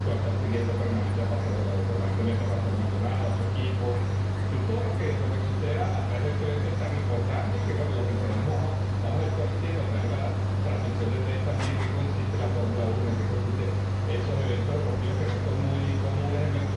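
A man is speaking in Spanish outdoors at a normal volume. 0.0 - 16.8
A cricket chirps rhythmically in the distance outdoors. 0.9 - 16.8

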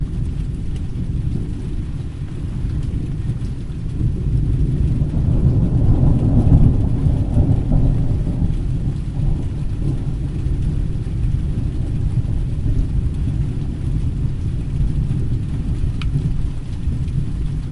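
Loud raindrops falling. 0.0 - 17.7
Strong wind howling during a storm. 4.6 - 8.6
A brief clicking sound. 15.7 - 16.4

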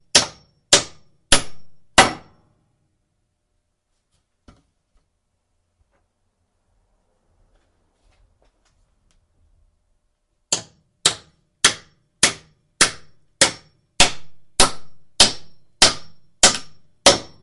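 A hammer strikes an object producing thudding sounds in a steady rhythm. 0.1 - 2.2
A short clacking sound at low volume. 4.4 - 4.6
Quiet sounds of movement and rustling. 8.1 - 9.5
A hammer strikes an object producing thudding sounds in a steady rhythm. 10.5 - 17.4

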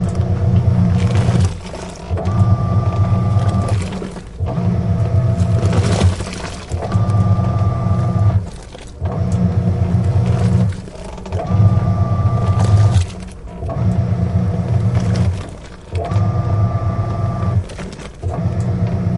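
A machine operating with a quiet hum. 0.0 - 1.2
Water splashes loudly. 1.1 - 2.2
A machine operating with a quiet hum. 2.2 - 3.8
Water splashes loudly. 3.8 - 4.7
A machine operating with a quiet hum. 4.7 - 5.9
Water splashes loudly. 5.9 - 6.9
A machine operating with a quiet hum. 6.9 - 10.7
Water splashes quietly. 8.6 - 9.1
Water splashes quietly. 10.7 - 11.5
A machine operating with a quiet hum. 11.5 - 12.6
Water splashes loudly. 12.6 - 13.7
A machine operating with a quiet hum. 13.7 - 15.1
Water splashing quietly. 15.1 - 16.0
A machine operating with a quiet hum. 16.0 - 17.7
Water splashes quietly. 17.7 - 18.4
A machine operating with a quiet hum. 18.3 - 19.2

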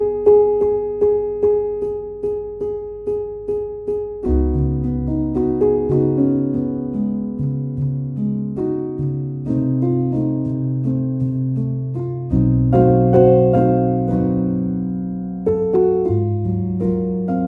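A rhythmic piano performance. 0.0 - 17.5

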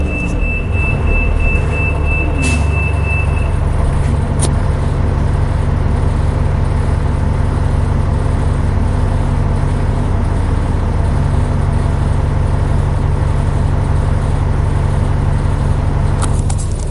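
A loud, rhythmic beeping sound. 0.0 - 3.7
The muffled sound of a bus engine. 0.0 - 16.9

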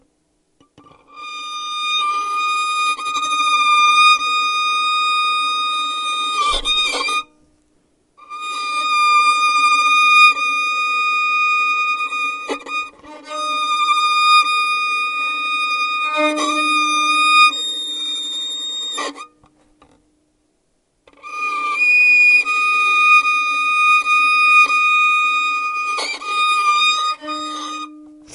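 Someone is playing a poorly tuned violin live. 0.7 - 28.0

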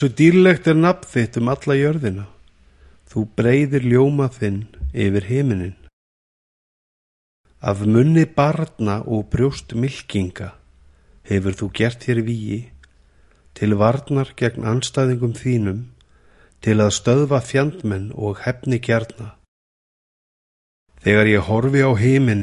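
A man is speaking indoors in a holy manner. 0.0 - 5.8
A man is speaking indoors in a holy manner. 7.6 - 19.3
A man is speaking indoors in a holy manner. 21.0 - 22.4

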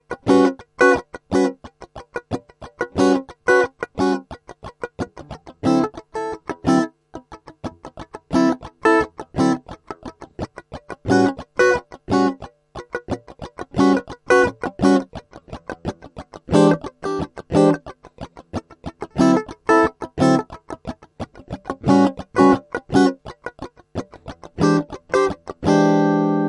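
Chords played on an electric guitar. 0.0 - 1.7
Scratching sounds over electric guitar strings. 1.7 - 2.7
Chords played on an electric guitar. 2.7 - 4.4
Scratching sounds over electric guitar strings. 4.3 - 5.6
Chords played on an electric guitar. 5.5 - 7.0
Scratching sounds over electric guitar strings. 7.0 - 8.3
Chords played on an electric guitar. 8.3 - 9.7
Scratching sounds over electric guitar strings. 9.7 - 11.0
Chords played on an electric guitar. 11.0 - 12.5
Scratching sounds over electric guitar strings. 12.5 - 13.7
Chords played on an electric guitar. 13.6 - 15.1
Scratching sounds over electric guitar strings. 15.1 - 16.4
Chords played on an electric guitar. 16.4 - 17.9
Scratching sounds over electric guitar strings. 17.9 - 19.1
Chords played on an electric guitar. 19.0 - 20.7
Scratching sounds over electric guitar strings. 20.7 - 21.7
Chords played on an electric guitar. 21.7 - 23.3
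Scratching sounds over electric guitar strings. 23.3 - 24.5
Chords played on an electric guitar. 24.4 - 26.5

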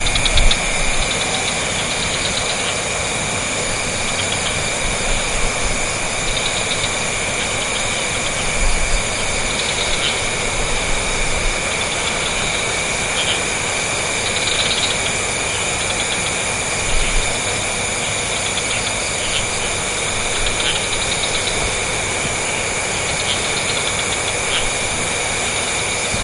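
A river flows in the jungle. 0.0 - 26.2
Birds calling in the distance in a jungle. 0.0 - 26.2

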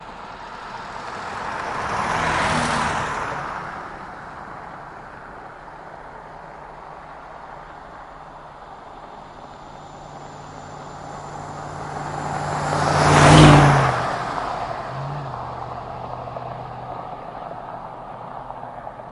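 Cars whiz past on a desert road, their engines producing a light, smooth hum as they move quickly through the still open landscape, with the whoosh of passing traffic coming in bursts and fading rapidly into the distance, occasionally interrupted by tire skids or wind gusts. 0.2 - 19.0

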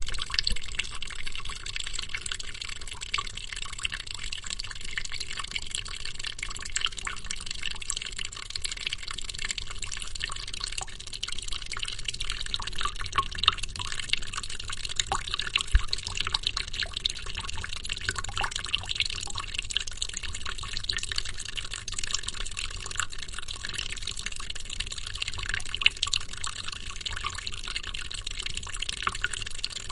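A steady splashing liquid hits a surface, resembling the sound of urination in a quiet setting. 0.2 - 29.9

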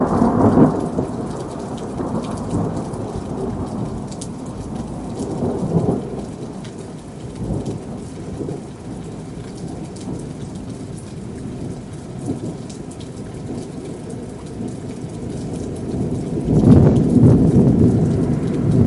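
Thunder roars nearby. 0.0 - 4.0
Constant background rain noise. 0.0 - 18.9
Thunder roars nearby. 5.0 - 6.2
Distant thunder sounds faintly. 7.3 - 10.4
Thunder sounds faintly in the distance. 10.9 - 16.4
Strong thunder sounds nearby. 16.5 - 18.9

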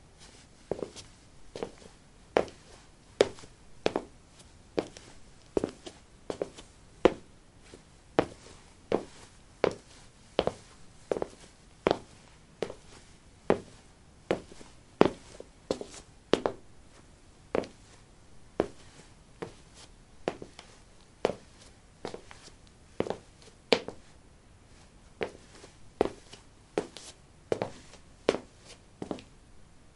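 A person's clothing softly rustles with each movement, producing a light, repetitive swishing sound that is subtle and rhythmic, repeating steadily and fading slightly as the person pauses or changes pace. 0.0 - 30.0
Footstep. 0.7 - 29.9
Clear, rhythmic footsteps on a hard floor with sharp, echoing taps spaced evenly. 0.7 - 1.0

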